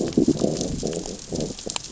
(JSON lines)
{"label": "biophony, growl", "recorder": "SoundTrap 600 or HydroMoth"}